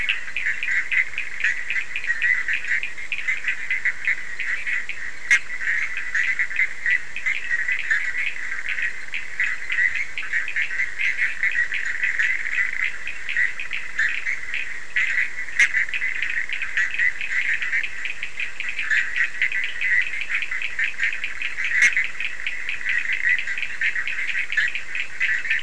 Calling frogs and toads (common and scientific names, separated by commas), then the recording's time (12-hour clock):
Bischoff's tree frog (Boana bischoffi), Cochran's lime tree frog (Sphaenorhynchus surdus)
1:15am